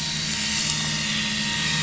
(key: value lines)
label: anthrophony, boat engine
recorder: SoundTrap 500